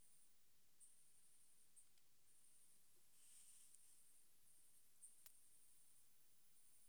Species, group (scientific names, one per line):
Leptophyes punctatissima
Orthoptera